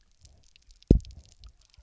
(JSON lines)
{"label": "biophony, double pulse", "recorder": "SoundTrap 300"}